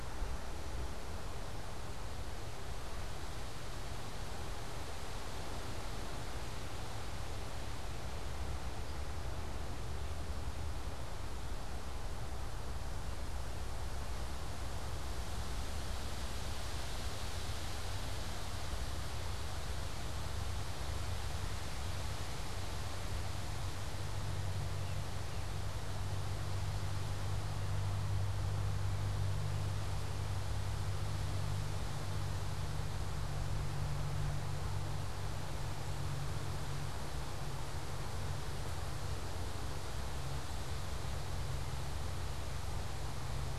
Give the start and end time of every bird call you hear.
[8.71, 9.11] unidentified bird
[24.71, 25.81] unidentified bird

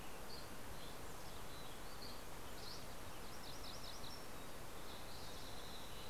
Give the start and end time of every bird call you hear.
[0.00, 1.07] Dusky Flycatcher (Empidonax oberholseri)
[0.97, 1.77] Mountain Chickadee (Poecile gambeli)
[1.77, 2.87] Dusky Flycatcher (Empidonax oberholseri)
[3.27, 4.37] MacGillivray's Warbler (Geothlypis tolmiei)
[4.07, 6.10] Red-breasted Nuthatch (Sitta canadensis)
[4.47, 6.10] Spotted Towhee (Pipilo maculatus)

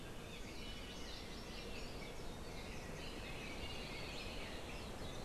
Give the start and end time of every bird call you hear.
[0.61, 1.11] Iiwi (Drepanis coccinea)
[0.91, 2.31] Hawaii Amakihi (Chlorodrepanis virens)
[2.51, 4.81] Red-billed Leiothrix (Leiothrix lutea)
[3.41, 4.61] Hawaii Creeper (Loxops mana)

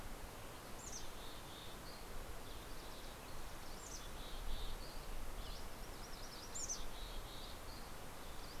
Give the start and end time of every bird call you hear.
[0.60, 2.00] Mountain Chickadee (Poecile gambeli)
[1.80, 3.10] Dusky Flycatcher (Empidonax oberholseri)
[3.40, 4.70] Mountain Chickadee (Poecile gambeli)
[4.60, 5.70] Dusky Flycatcher (Empidonax oberholseri)
[5.60, 6.80] MacGillivray's Warbler (Geothlypis tolmiei)
[6.40, 7.50] Mountain Chickadee (Poecile gambeli)
[7.70, 8.60] Dusky Flycatcher (Empidonax oberholseri)

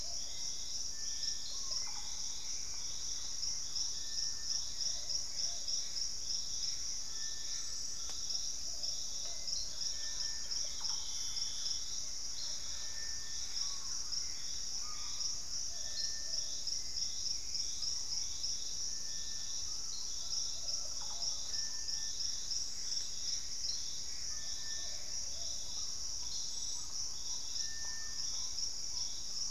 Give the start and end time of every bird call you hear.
[0.00, 3.95] Hauxwell's Thrush (Turdus hauxwelli)
[0.00, 29.50] Plumbeous Pigeon (Patagioenas plumbea)
[1.35, 1.95] Screaming Piha (Lipaugus vociferans)
[1.55, 2.65] Russet-backed Oropendola (Psarocolius angustifrons)
[2.15, 5.35] Thrush-like Wren (Campylorhynchus turdinus)
[4.85, 7.85] Gray Antbird (Cercomacra cinerascens)
[6.55, 8.55] Collared Trogon (Trogon collaris)
[8.95, 14.45] Thrush-like Wren (Campylorhynchus turdinus)
[9.15, 18.65] Hauxwell's Thrush (Turdus hauxwelli)
[10.55, 11.55] Russet-backed Oropendola (Psarocolius angustifrons)
[13.25, 15.45] Gray Antbird (Cercomacra cinerascens)
[13.35, 15.45] Screaming Piha (Lipaugus vociferans)
[17.55, 29.50] Purple-throated Fruitcrow (Querula purpurata)
[19.55, 21.15] Collared Trogon (Trogon collaris)
[20.75, 21.95] Russet-backed Oropendola (Psarocolius angustifrons)
[22.15, 25.35] Gray Antbird (Cercomacra cinerascens)
[27.85, 29.35] Ringed Woodpecker (Celeus torquatus)

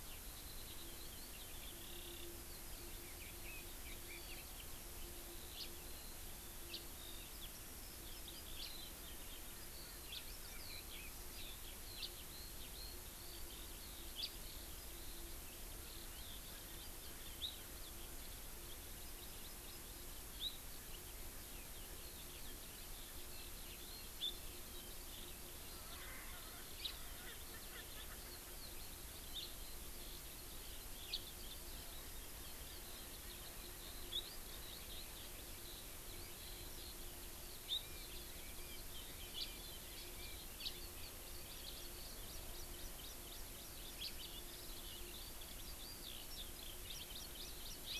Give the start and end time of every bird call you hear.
[0.00, 47.99] Eurasian Skylark (Alauda arvensis)
[5.58, 5.67] House Finch (Haemorhous mexicanus)
[6.67, 6.78] House Finch (Haemorhous mexicanus)
[8.57, 8.68] House Finch (Haemorhous mexicanus)
[10.07, 10.28] House Finch (Haemorhous mexicanus)
[11.97, 12.07] House Finch (Haemorhous mexicanus)
[14.18, 14.28] House Finch (Haemorhous mexicanus)
[18.98, 19.88] Hawaii Amakihi (Chlorodrepanis virens)
[25.77, 28.57] Erckel's Francolin (Pternistis erckelii)
[26.77, 26.88] House Finch (Haemorhous mexicanus)
[29.27, 29.48] House Finch (Haemorhous mexicanus)
[31.07, 31.18] House Finch (Haemorhous mexicanus)
[37.77, 40.48] Chinese Hwamei (Garrulax canorus)
[39.38, 39.48] House Finch (Haemorhous mexicanus)
[40.58, 40.67] House Finch (Haemorhous mexicanus)
[41.48, 43.98] Hawaii Amakihi (Chlorodrepanis virens)
[43.98, 44.08] House Finch (Haemorhous mexicanus)
[46.88, 47.99] Hawaii Amakihi (Chlorodrepanis virens)

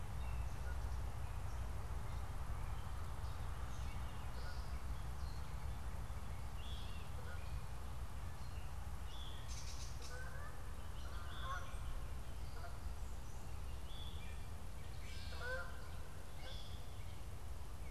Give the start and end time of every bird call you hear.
[0.00, 1.10] Gray Catbird (Dumetella carolinensis)
[2.20, 7.80] Gray Catbird (Dumetella carolinensis)
[6.40, 7.00] Veery (Catharus fuscescens)
[8.90, 9.50] Veery (Catharus fuscescens)
[9.30, 10.30] Gray Catbird (Dumetella carolinensis)
[9.90, 13.10] Canada Goose (Branta canadensis)
[11.20, 11.90] Veery (Catharus fuscescens)
[14.90, 15.70] Gray Catbird (Dumetella carolinensis)
[15.30, 15.90] Canada Goose (Branta canadensis)
[16.30, 16.80] Veery (Catharus fuscescens)

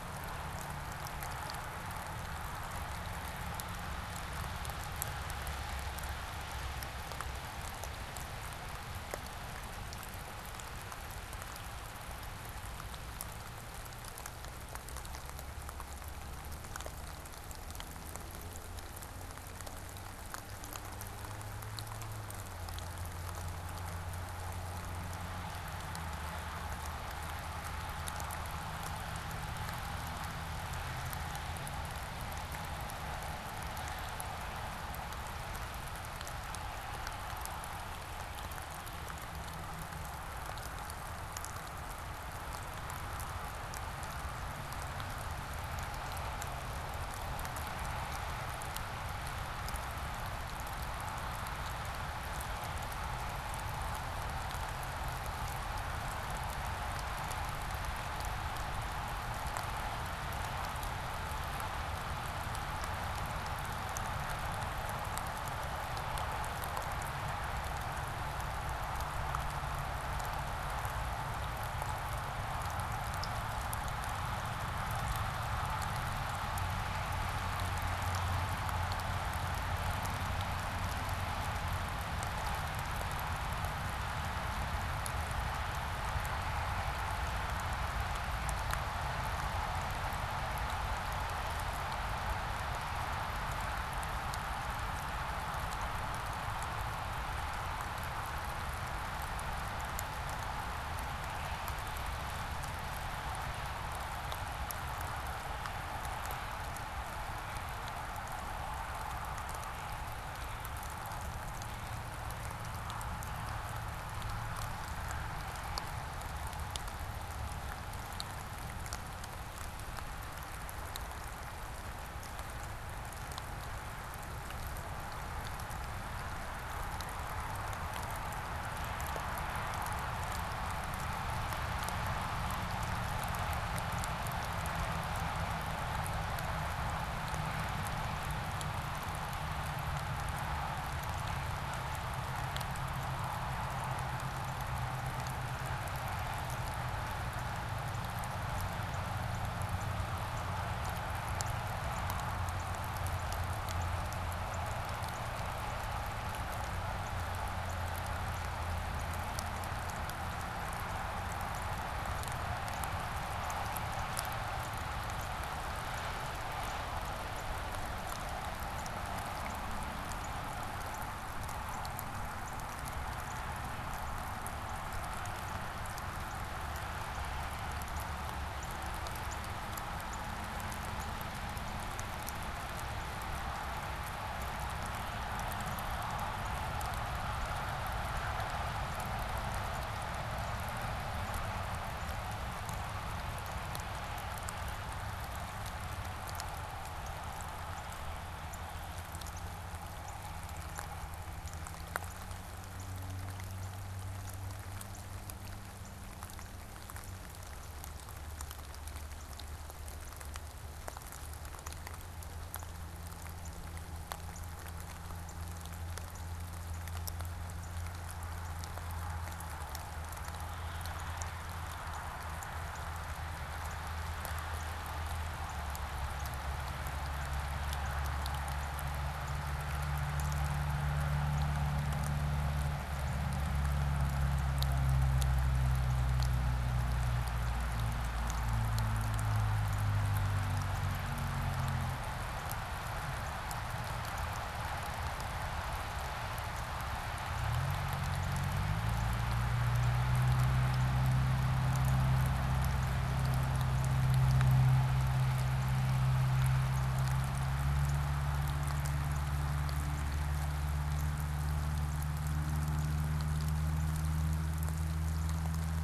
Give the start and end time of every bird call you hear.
[144.21, 159.10] Northern Cardinal (Cardinalis cardinalis)
[161.31, 219.10] Northern Cardinal (Cardinalis cardinalis)
[219.81, 233.50] Northern Cardinal (Cardinalis cardinalis)
[259.00, 263.70] Northern Cardinal (Cardinalis cardinalis)

